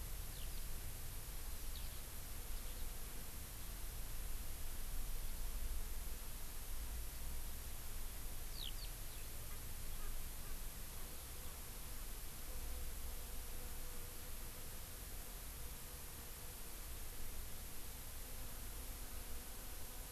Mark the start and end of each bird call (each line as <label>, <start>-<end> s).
Eurasian Skylark (Alauda arvensis), 0.3-0.6 s
Eurasian Skylark (Alauda arvensis), 1.7-2.0 s
Eurasian Skylark (Alauda arvensis), 8.5-8.9 s
Erckel's Francolin (Pternistis erckelii), 9.5-9.6 s
Erckel's Francolin (Pternistis erckelii), 10.0-10.1 s